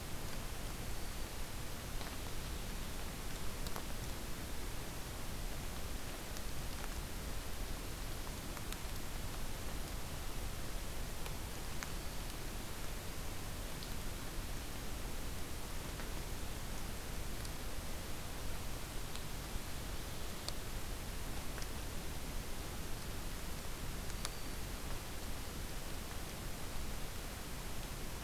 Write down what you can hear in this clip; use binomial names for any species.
Setophaga virens